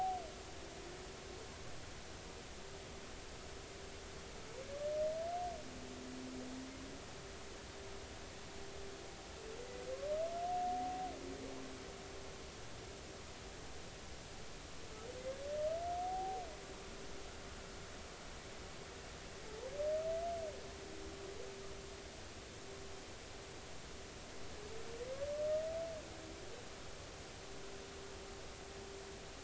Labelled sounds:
16.0	16.4	humpback whale, 0.80 to 0.86 kHz

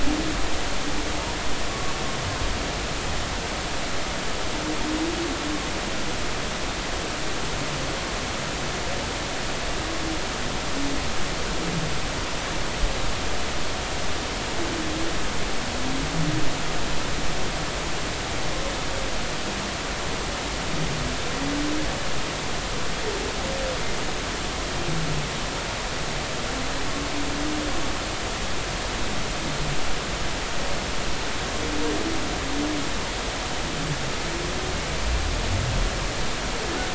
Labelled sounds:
1.7	1.9	humpback whale, 1.1 to 1.2 kHz

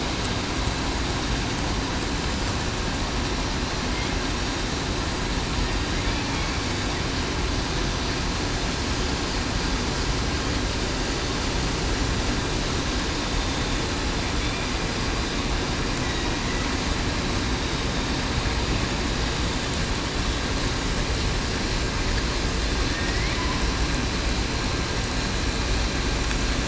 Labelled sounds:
22.9	23.3	killer whale, southern resident, 1.8 to 2.3 kHz

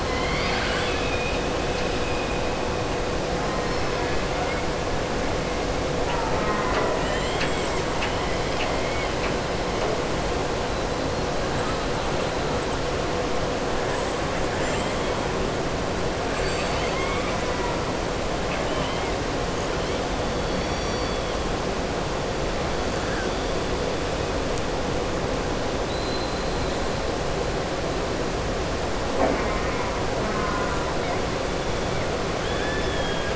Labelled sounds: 0.0	1.4	killer whale, southern resident, 1.1 to 5.1 kHz
16.2	17.4	killer whale, southern resident, 1.0 to 5.0 kHz
18.4	19.1	killer whale, southern resident, 1.2 to 4.0 kHz
25.8	26.7	killer whale, southern resident, 3.8 to 4.2 kHz
32.3	33.3	killer whale, southern resident, 1.1 to 3.6 kHz

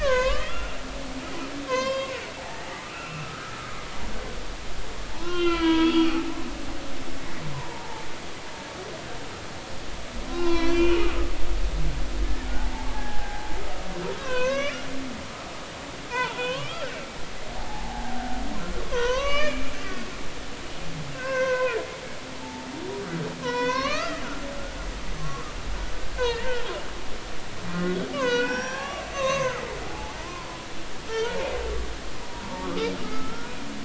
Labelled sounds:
0.0	1.4	humpback whale, 0.96 to 6.3 kHz
1.7	3.8	humpback whale, 0.80 to 5.9 kHz
5.1	6.1	humpback whale, 0.83 to 4.8 kHz
7.5	8.0	humpback whale, 0.83 to 1.1 kHz
10.3	11.2	humpback whale, 0.80 to 5.8 kHz
12.9	13.4	humpback whale, 0.80 to 1.7 kHz
14.2	14.8	humpback whale, 0.96 to 6.3 kHz
16.1	18.1	humpback whale, 0.80 to 3.4 kHz
18.6	19.7	humpback whale, 0.93 to 4.9 kHz
21.1	21.8	humpback whale, 0.93 to 2.8 kHz
22.4	22.7	humpback whale, 0.83 to 0.96 kHz
23.4	24.2	humpback whale, 0.93 to 4.8 kHz
25.2	25.5	humpback whale, 1.0 to 1.2 kHz
26.1	26.7	humpback whale, 1.4 to 3.0 kHz
28.1	29.6	humpback whale, 0.80 to 6.7 kHz
29.9	31.5	humpback whale, 0.80 to 1.5 kHz
32.6	33.6	humpback whale, 1.0 to 1.5 kHz

